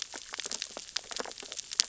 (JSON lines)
{"label": "biophony, sea urchins (Echinidae)", "recorder": "SoundTrap 600 or HydroMoth"}